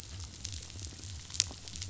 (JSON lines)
{"label": "biophony", "recorder": "SoundTrap 500"}